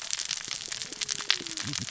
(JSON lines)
{"label": "biophony, cascading saw", "recorder": "SoundTrap 600 or HydroMoth"}